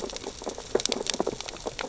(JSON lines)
{"label": "biophony, sea urchins (Echinidae)", "recorder": "SoundTrap 600 or HydroMoth"}